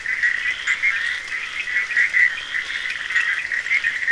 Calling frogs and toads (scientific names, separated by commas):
Boana bischoffi, Scinax perereca, Sphaenorhynchus surdus